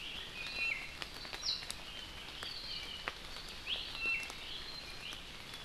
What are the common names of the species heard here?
Iiwi